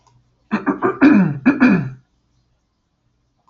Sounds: Throat clearing